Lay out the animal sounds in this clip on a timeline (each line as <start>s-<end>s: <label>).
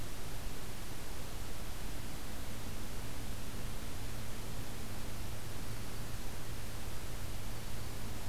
5.6s-6.1s: Black-throated Green Warbler (Setophaga virens)
7.3s-8.0s: Black-throated Green Warbler (Setophaga virens)